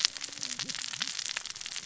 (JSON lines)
{"label": "biophony, cascading saw", "recorder": "SoundTrap 600 or HydroMoth"}